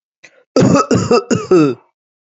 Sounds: Cough